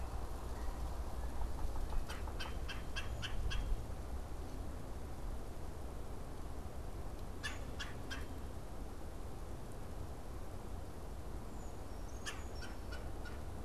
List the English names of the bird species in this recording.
Red-bellied Woodpecker, Brown Creeper